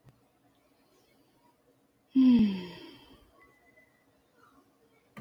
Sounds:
Sigh